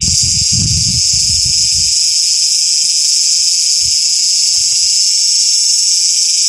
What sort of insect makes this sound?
cicada